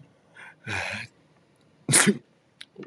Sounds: Sneeze